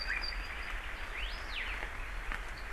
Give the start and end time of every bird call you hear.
[1.60, 2.40] Hawaii Elepaio (Chasiempis sandwichensis)

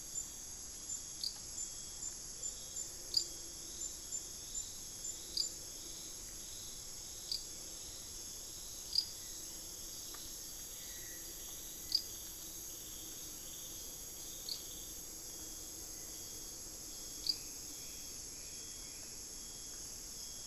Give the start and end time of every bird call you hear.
[8.78, 12.28] Spot-winged Antshrike (Pygiptila stellaris)
[9.08, 12.38] unidentified bird

